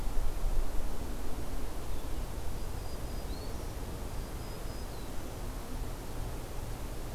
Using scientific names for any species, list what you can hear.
Setophaga virens